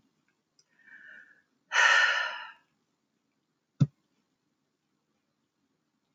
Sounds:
Sigh